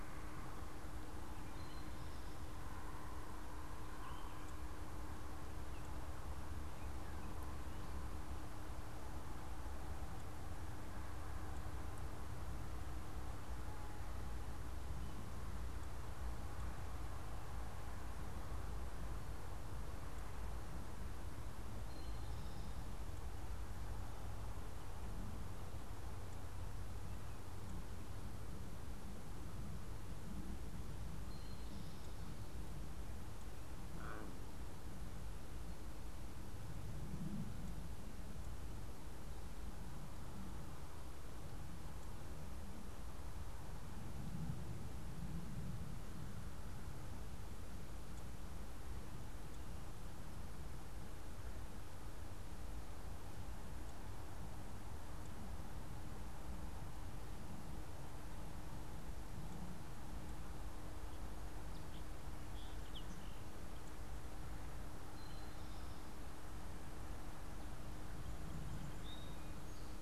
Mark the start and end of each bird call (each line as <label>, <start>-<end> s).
Eastern Towhee (Pipilo erythrophthalmus), 1.4-2.2 s
Eastern Towhee (Pipilo erythrophthalmus), 21.7-22.8 s
Eastern Towhee (Pipilo erythrophthalmus), 30.9-32.2 s
Song Sparrow (Melospiza melodia), 61.8-63.5 s
Eastern Towhee (Pipilo erythrophthalmus), 64.9-66.1 s
Eastern Towhee (Pipilo erythrophthalmus), 68.8-70.0 s